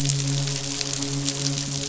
{"label": "biophony, midshipman", "recorder": "SoundTrap 500"}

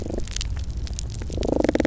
{"label": "biophony, damselfish", "recorder": "SoundTrap 300"}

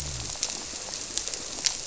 {"label": "biophony", "recorder": "SoundTrap 300"}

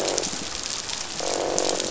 {"label": "biophony, croak", "recorder": "SoundTrap 500"}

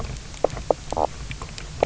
{"label": "biophony, knock croak", "recorder": "SoundTrap 300"}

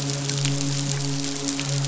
{"label": "biophony, midshipman", "recorder": "SoundTrap 500"}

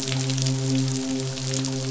{"label": "biophony, midshipman", "recorder": "SoundTrap 500"}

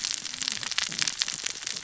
{"label": "biophony, cascading saw", "recorder": "SoundTrap 600 or HydroMoth"}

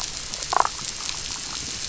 {"label": "biophony, damselfish", "recorder": "SoundTrap 500"}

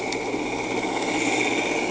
{"label": "anthrophony, boat engine", "recorder": "HydroMoth"}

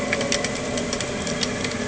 {"label": "anthrophony, boat engine", "recorder": "HydroMoth"}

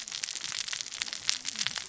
{"label": "biophony, cascading saw", "recorder": "SoundTrap 600 or HydroMoth"}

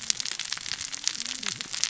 {"label": "biophony, cascading saw", "recorder": "SoundTrap 600 or HydroMoth"}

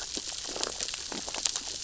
{"label": "biophony, sea urchins (Echinidae)", "recorder": "SoundTrap 600 or HydroMoth"}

